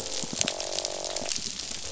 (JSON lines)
{"label": "biophony, croak", "recorder": "SoundTrap 500"}
{"label": "biophony", "recorder": "SoundTrap 500"}